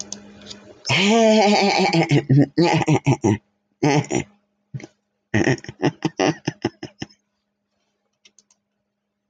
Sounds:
Laughter